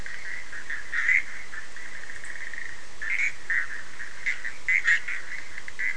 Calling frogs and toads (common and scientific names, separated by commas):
Bischoff's tree frog (Boana bischoffi)